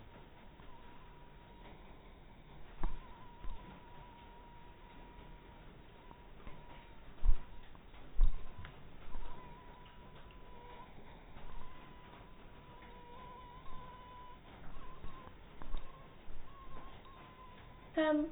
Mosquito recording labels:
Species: mosquito; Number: one; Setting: cup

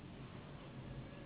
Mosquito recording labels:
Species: Anopheles gambiae s.s.; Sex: female; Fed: unfed; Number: one; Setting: insect culture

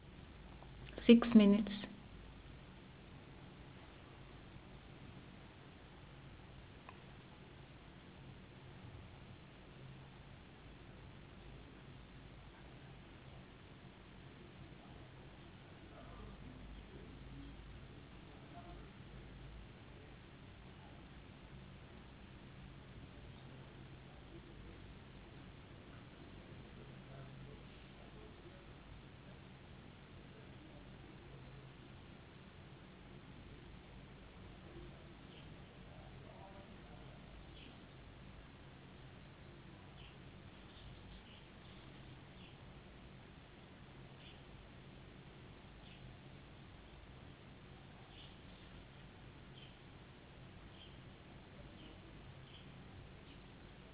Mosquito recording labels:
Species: no mosquito; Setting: insect culture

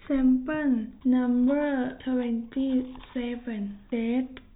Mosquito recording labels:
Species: no mosquito; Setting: cup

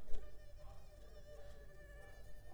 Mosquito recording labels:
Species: Culex pipiens complex; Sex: female; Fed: unfed; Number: one; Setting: cup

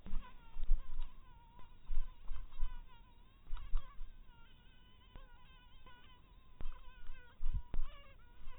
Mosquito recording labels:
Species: mosquito; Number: one; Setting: cup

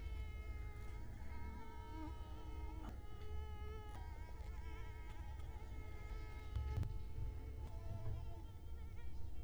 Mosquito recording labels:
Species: Culex quinquefasciatus; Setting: cup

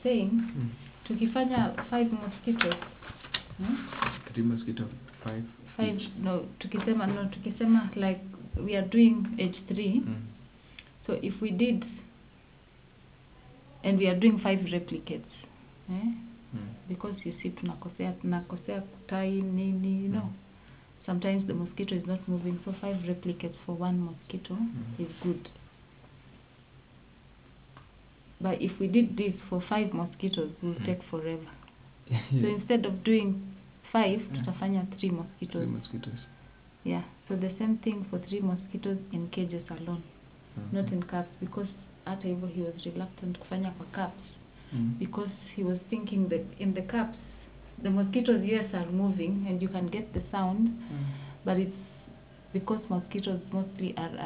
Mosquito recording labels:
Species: no mosquito; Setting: insect culture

